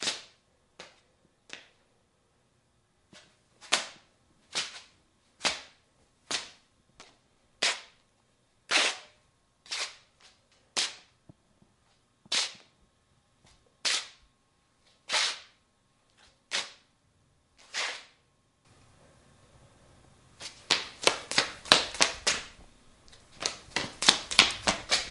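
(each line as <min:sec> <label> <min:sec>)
0:00.0 Footsteps of someone walking in slippers on a concrete floor indoors. 0:01.6
0:01.6 Indoor ambient static noise. 0:03.1
0:03.1 Footsteps of someone walking in slippers on a concrete floor indoors. 0:07.5
0:07.5 Sliding footsteps in slippers on a concrete floor with pauses. 0:18.1
0:18.1 Indoor ambient static noise. 0:20.3
0:20.3 Footsteps running in slippers on a concrete floor indoors. 0:25.1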